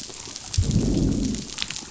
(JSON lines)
{"label": "biophony, growl", "recorder": "SoundTrap 500"}